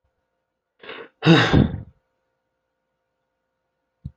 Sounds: Sigh